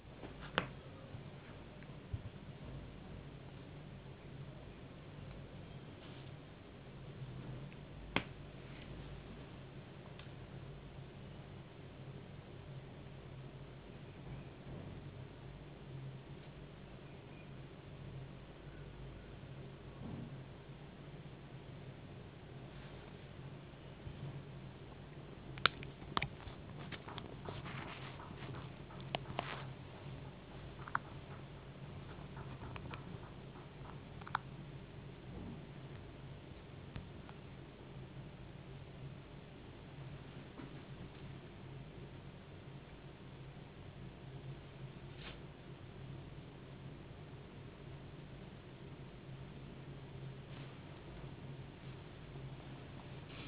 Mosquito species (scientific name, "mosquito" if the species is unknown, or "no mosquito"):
no mosquito